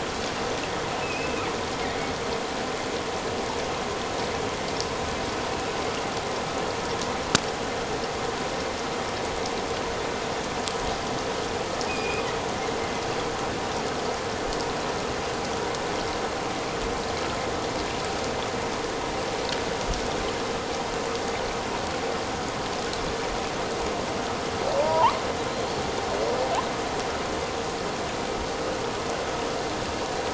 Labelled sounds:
1.0	1.4	killer whale, offshore, 2.4 to 2.7 kHz
11.9	12.3	killer whale, offshore, 2.4 to 2.6 kHz
24.8	25.2	killer whale, offshore, 0.84 to 1.2 kHz

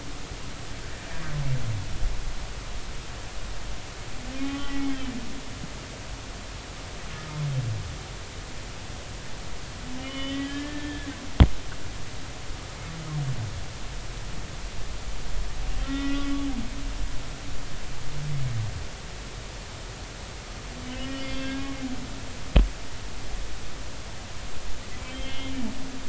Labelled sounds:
4.4	5.7	humpback whale, 1.1 to 3.2 kHz
10.0	11.1	humpback whale, 1.6 to 3.6 kHz
15.8	16.3	humpback whale, 1.3 to 3.6 kHz
21.0	21.6	humpback whale, 1.5 to 3.6 kHz
25.1	25.6	humpback whale, 2.1 to 3.5 kHz

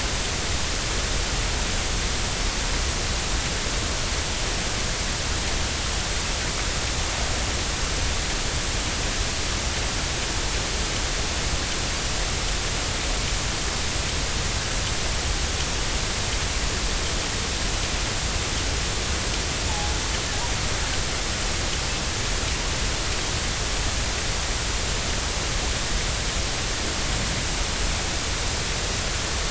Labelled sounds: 19.7	20.0	killer whale, 0.80 to 0.93 kHz

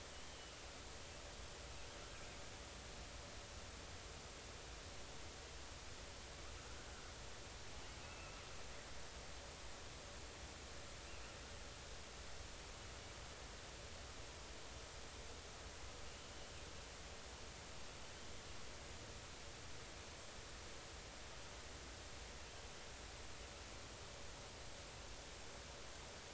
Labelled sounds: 8.0	8.3	killer whale, offshore, 2.5 to 2.7 kHz

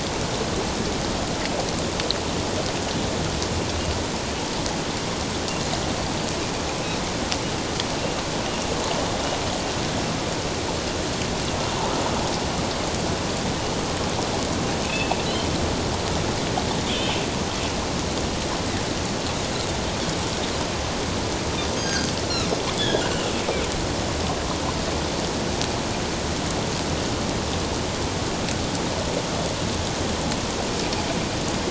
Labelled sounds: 14.8	15.2	Pacific white-sided dolphin, 2.4 to 2.8 kHz
16.9	17.2	Pacific white-sided dolphin, 2.3 to 3.7 kHz
21.8	22.1	Pacific white-sided dolphin, 3.1 to 6.5 kHz
22.8	23.1	Pacific white-sided dolphin, 3.2 to 3.6 kHz

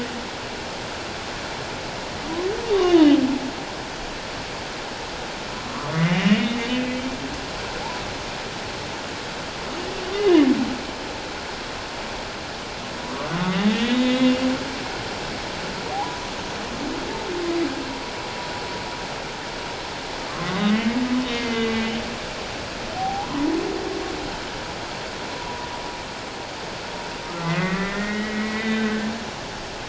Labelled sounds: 2.7	3.2	humpback whale, 0.91 to 3.2 kHz
5.6	7.0	humpback whale, 0.97 to 3.0 kHz
10.1	10.4	humpback whale, 2.8 to 3.0 kHz
13.1	13.4	humpback whale, 1.1 to 1.2 kHz
13.7	14.5	humpback whale, 1.8 to 3.9 kHz
15.9	16.3	humpback whale, 0.78 to 1.1 kHz
20.3	21.0	humpback whale, 1.0 to 2.2 kHz
21.3	21.9	humpback whale, 2.0 to 3.0 kHz
23.0	23.5	humpback whale, 0.78 to 1.1 kHz
25.3	25.7	humpback whale, 0.91 to 1.1 kHz
27.4	29.1	humpback whale, 1.1 to 3.8 kHz

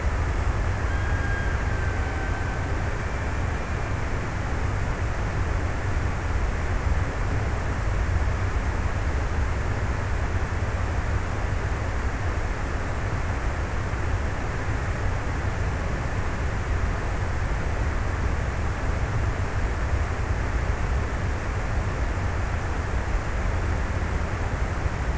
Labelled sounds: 0.0	4.2	killer whale, Bigg's (transient), 1.3 to 1.9 kHz

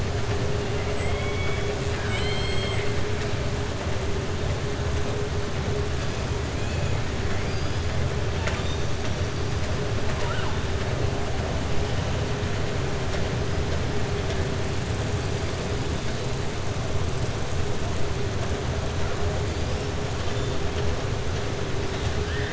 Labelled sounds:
0.9	2.9	killer whale, southern resident, 1.1 to 5.1 kHz
7.4	7.8	killer whale, southern resident, 3.9 to 5.4 kHz
10.0	10.5	killer whale, southern resident, 0.62 to 3.7 kHz

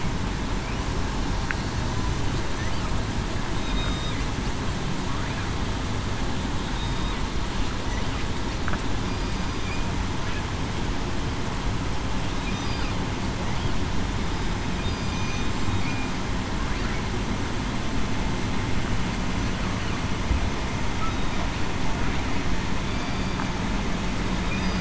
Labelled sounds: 3.7	4.1	killer whale, southern resident, 3.6 to 3.8 kHz
6.7	7.1	killer whale, southern resident, 3.7 to 3.8 kHz
9.0	9.4	killer whale, southern resident, 4.8 to 4.9 kHz
15.1	15.5	killer whale, southern resident, 2.4 to 6.2 kHz
21.1	21.4	killer whale, southern resident, 3.7 to 3.8 kHz
22.8	23.4	killer whale, southern resident, 4.6 to 4.8 kHz

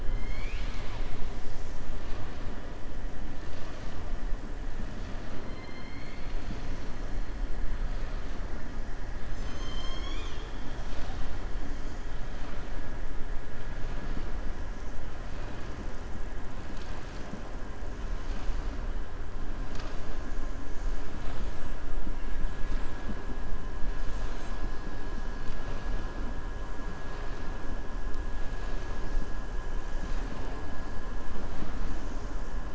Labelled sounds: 0.1	1.2	killer whale, southern resident, 1.1 to 6.8 kHz
5.5	6.9	killer whale, southern resident, 2.0 to 6.1 kHz

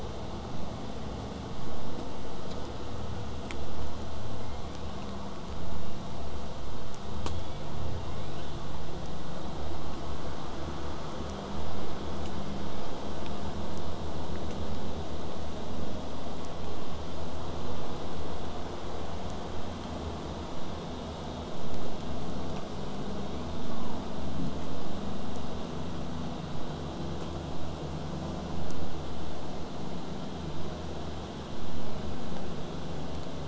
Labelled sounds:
7.1	7.7	killer whale, southern resident, J pod, 1.9 to 3.7 kHz

